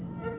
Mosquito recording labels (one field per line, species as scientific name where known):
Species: Aedes albopictus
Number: several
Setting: insect culture